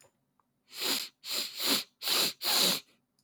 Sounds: Sniff